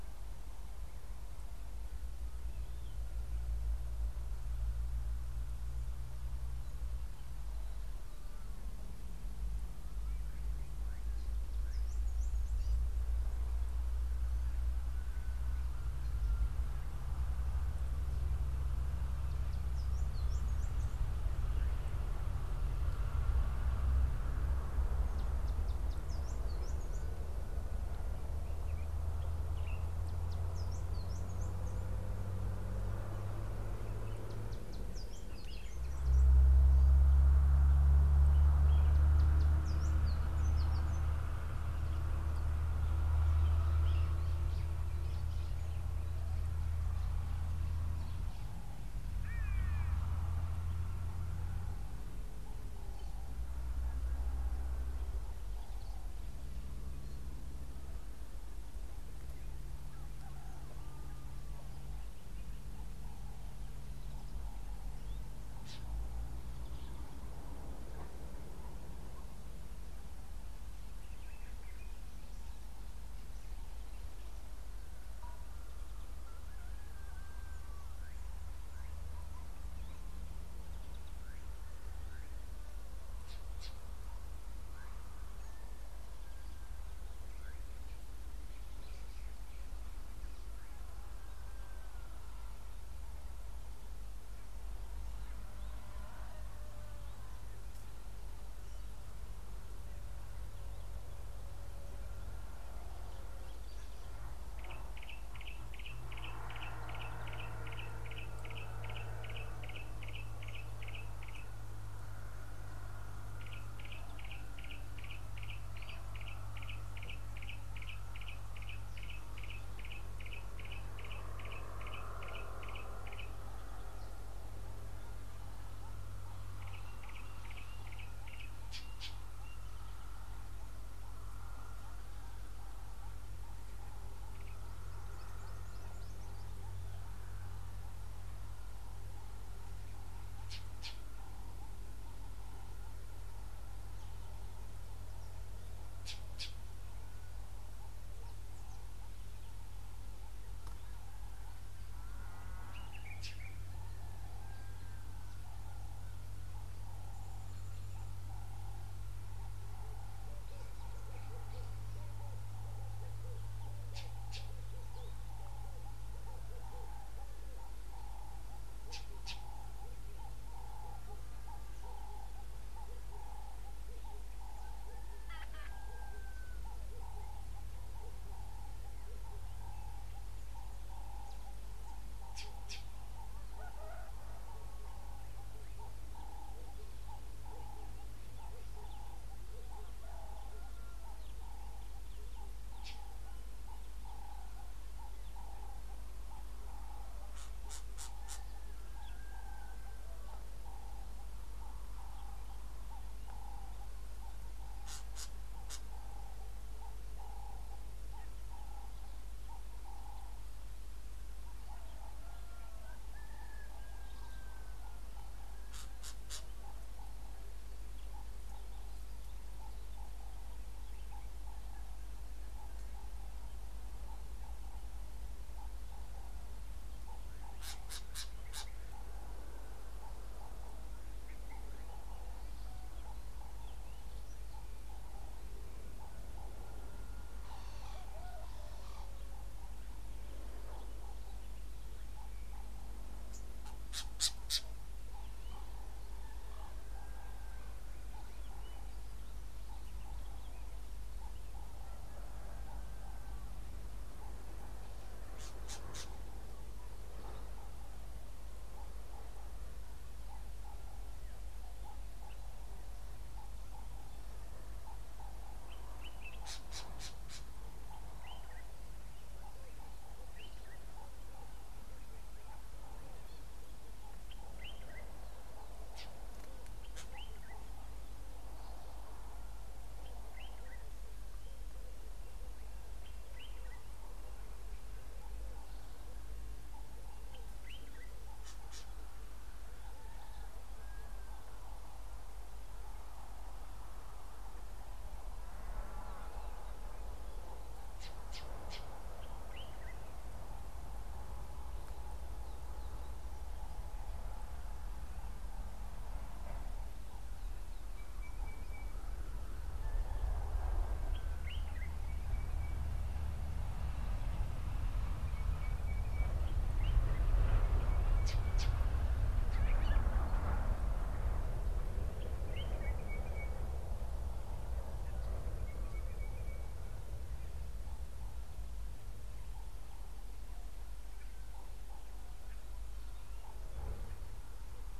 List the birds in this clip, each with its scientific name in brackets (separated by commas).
Common Bulbul (Pycnonotus barbatus), White-browed Robin-Chat (Cossypha heuglini), Yellow-breasted Apalis (Apalis flavida), Red-eyed Dove (Streptopelia semitorquata), Collared Sunbird (Hedydipna collaris), Ring-necked Dove (Streptopelia capicola), White-bellied Go-away-bird (Corythaixoides leucogaster), Sulphur-breasted Bushshrike (Telophorus sulfureopectus), Gray-backed Camaroptera (Camaroptera brevicaudata), Northern Puffback (Dryoscopus gambensis)